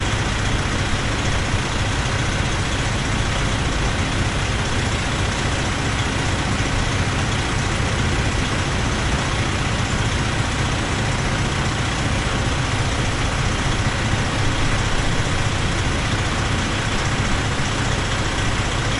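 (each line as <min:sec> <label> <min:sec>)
0:00.0 A truck engine idling. 0:19.0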